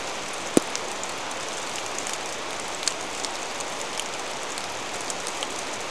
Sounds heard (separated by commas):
rain